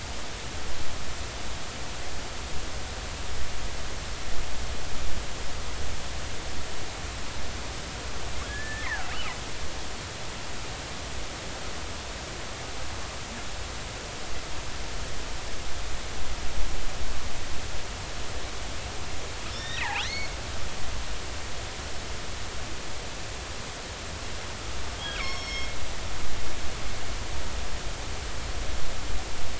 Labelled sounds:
8.4	9.1	killer whale, northern resident, G clan, GG subclan, call N29, 1.3 to 2.3 kHz
19.5	20.3	killer whale, northern resident, G clan, GG subclan, call N28, 1.6 to 4.5 kHz
25.1	26.7	killer whale, northern resident, G clan, GG subclan, call N23ii, 1.0 to 6.6 kHz

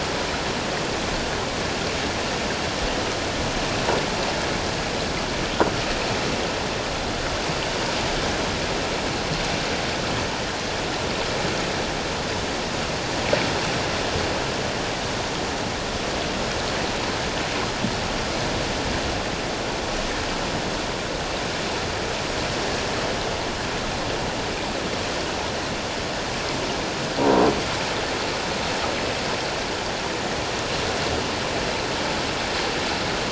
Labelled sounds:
27.2	27.5	croaking sound likely from a nearby submerged object, 0.88 to 1.1 kHz

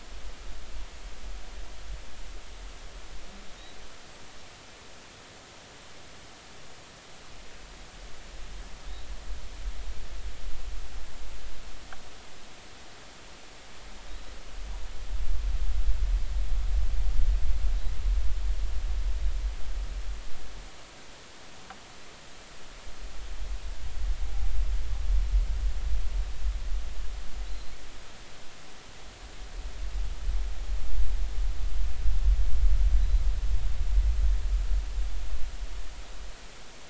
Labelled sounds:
27.4	27.7	humpback whale, 3.9 to 4.2 kHz

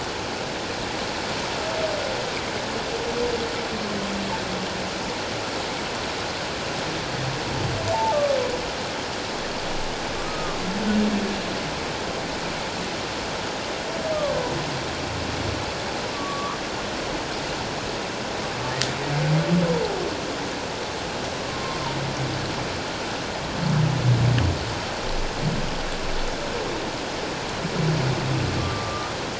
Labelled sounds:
10.2	10.6	humpback whale, 1.1 to 1.3 kHz
16.1	16.6	humpback whale, 0.97 to 1.3 kHz
21.5	21.8	humpback whale, 1.0 to 1.1 kHz
28.5	29.1	humpback whale, 1.1 to 1.3 kHz

